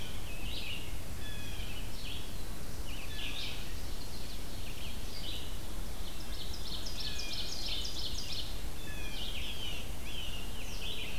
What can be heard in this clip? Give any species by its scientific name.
Cyanocitta cristata, Vireo olivaceus, Setophaga caerulescens, Seiurus aurocapilla